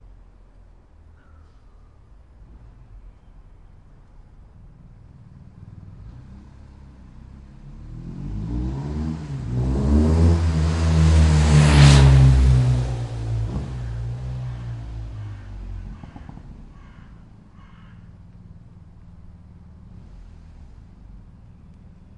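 5.1s A motorcycle passes by. 18.6s

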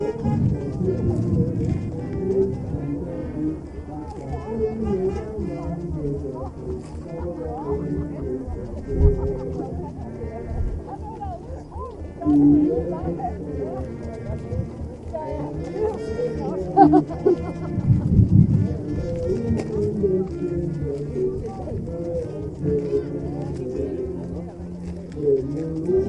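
0.0s People celebrating with singing and crowd talking alongside outdoor summer ambience. 26.1s
16.8s Laughter covering an outdoor public band performance. 17.4s
17.8s Wind noise overlaps sounds of an outdoor public band performance. 18.7s

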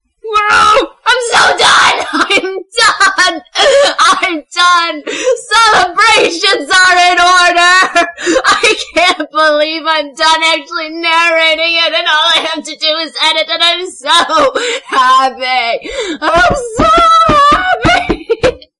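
0.0s A woman screams loudly with happiness. 18.8s

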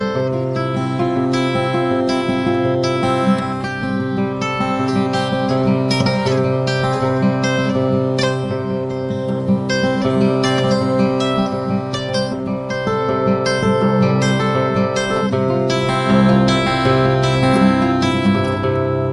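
0.0s An acoustic guitar is being played. 19.1s

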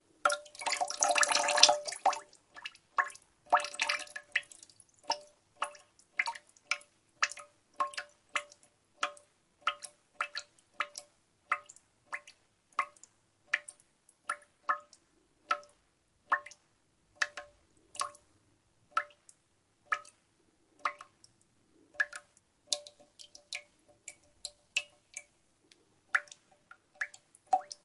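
0.0s Water drips with decreasing frequency. 27.8s

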